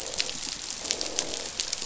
{"label": "biophony, croak", "recorder": "SoundTrap 500"}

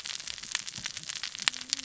{"label": "biophony, cascading saw", "recorder": "SoundTrap 600 or HydroMoth"}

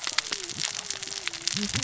{"label": "biophony, cascading saw", "recorder": "SoundTrap 600 or HydroMoth"}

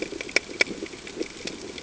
{"label": "ambient", "recorder": "HydroMoth"}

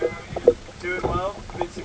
{"label": "ambient", "recorder": "HydroMoth"}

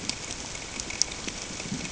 {"label": "ambient", "recorder": "HydroMoth"}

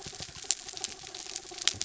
{"label": "anthrophony, mechanical", "recorder": "SoundTrap 300"}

